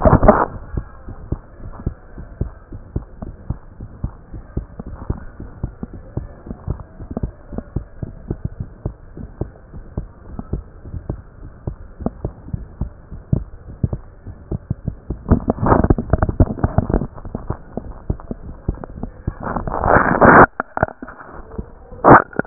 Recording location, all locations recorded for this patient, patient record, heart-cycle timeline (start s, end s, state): aortic valve (AV)
aortic valve (AV)+pulmonary valve (PV)+tricuspid valve (TV)+mitral valve (MV)
#Age: Adolescent
#Sex: Female
#Height: 156.0 cm
#Weight: 36.7 kg
#Pregnancy status: False
#Murmur: Absent
#Murmur locations: nan
#Most audible location: nan
#Systolic murmur timing: nan
#Systolic murmur shape: nan
#Systolic murmur grading: nan
#Systolic murmur pitch: nan
#Systolic murmur quality: nan
#Diastolic murmur timing: nan
#Diastolic murmur shape: nan
#Diastolic murmur grading: nan
#Diastolic murmur pitch: nan
#Diastolic murmur quality: nan
#Outcome: Abnormal
#Campaign: 2015 screening campaign
0.00	0.89	unannotated
0.89	1.06	diastole
1.06	1.16	S1
1.16	1.26	systole
1.26	1.40	S2
1.40	1.62	diastole
1.62	1.74	S1
1.74	1.82	systole
1.82	1.96	S2
1.96	2.18	diastole
2.18	2.28	S1
2.28	2.40	systole
2.40	2.54	S2
2.54	2.69	diastole
2.69	2.84	S1
2.84	2.94	systole
2.94	3.06	S2
3.06	3.23	diastole
3.23	3.36	S1
3.36	3.48	systole
3.48	3.58	S2
3.58	3.77	diastole
3.77	3.88	S1
3.88	4.00	systole
4.00	4.12	S2
4.12	4.32	diastole
4.32	4.44	S1
4.44	4.56	systole
4.56	4.66	S2
4.66	4.88	diastole
4.88	5.00	S1
5.00	5.08	systole
5.08	5.20	S2
5.20	5.40	diastole
5.40	5.50	S1
5.50	5.62	systole
5.62	5.72	S2
5.72	5.94	diastole
5.94	6.04	S1
6.04	6.16	systole
6.16	6.28	S2
6.28	6.46	diastole
6.46	6.58	S1
6.58	6.66	systole
6.66	6.78	S2
6.78	7.00	diastole
7.00	7.10	S1
7.10	7.22	systole
7.22	7.32	S2
7.32	7.52	diastole
7.52	7.64	S1
7.64	7.72	systole
7.72	7.84	S2
7.84	7.98	diastole
7.98	8.16	S1
8.16	8.26	systole
8.26	8.38	S2
8.38	8.56	diastole
8.56	8.68	S1
8.68	8.82	systole
8.82	8.94	S2
8.94	9.18	diastole
9.18	9.30	S1
9.30	9.40	systole
9.40	9.52	S2
9.52	9.76	diastole
9.76	9.86	S1
9.86	9.96	systole
9.96	10.08	S2
10.08	10.30	diastole
10.30	10.40	S1
10.40	10.50	systole
10.50	10.64	S2
10.64	10.88	diastole
10.88	11.02	S1
11.02	11.08	systole
11.08	11.20	S2
11.20	11.44	diastole
11.44	11.54	S1
11.54	11.66	systole
11.66	11.78	S2
11.78	12.02	diastole
12.02	12.14	S1
12.14	12.22	systole
12.22	12.34	S2
12.34	12.54	diastole
12.54	12.68	S1
12.68	12.78	systole
12.78	12.92	S2
12.92	13.12	diastole
13.12	13.22	S1
13.22	22.46	unannotated